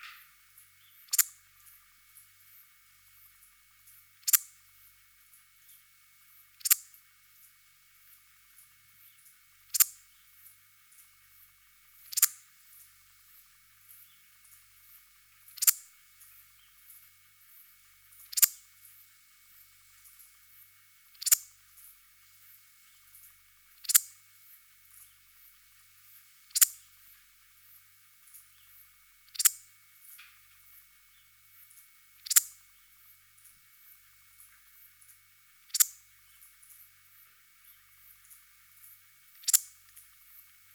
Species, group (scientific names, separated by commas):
Parasteropleurus perezii, Orthoptera